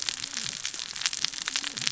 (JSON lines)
{"label": "biophony, cascading saw", "recorder": "SoundTrap 600 or HydroMoth"}